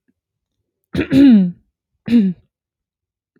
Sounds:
Throat clearing